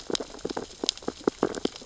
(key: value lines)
label: biophony, sea urchins (Echinidae)
recorder: SoundTrap 600 or HydroMoth